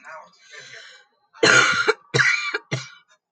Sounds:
Cough